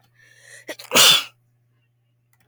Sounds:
Sneeze